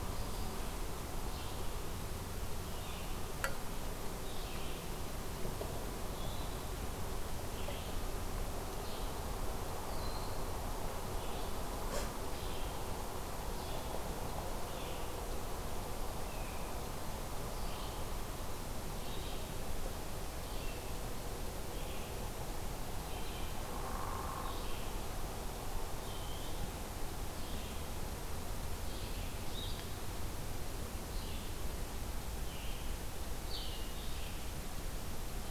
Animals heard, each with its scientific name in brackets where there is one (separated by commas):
Broad-winged Hawk (Buteo platypterus), Eastern Wood-Pewee (Contopus virens), Red-eyed Vireo (Vireo olivaceus), Hairy Woodpecker (Dryobates villosus)